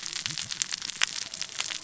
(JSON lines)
{"label": "biophony, cascading saw", "recorder": "SoundTrap 600 or HydroMoth"}